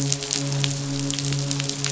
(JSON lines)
{"label": "biophony, midshipman", "recorder": "SoundTrap 500"}